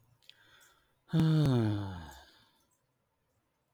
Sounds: Sigh